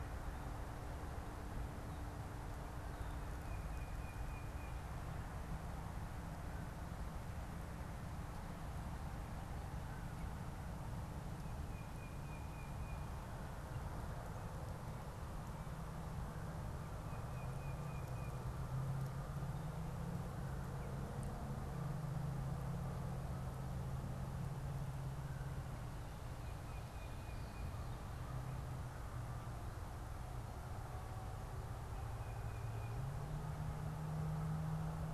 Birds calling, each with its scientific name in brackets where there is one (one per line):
Tufted Titmouse (Baeolophus bicolor)